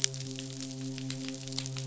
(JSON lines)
{"label": "biophony, midshipman", "recorder": "SoundTrap 500"}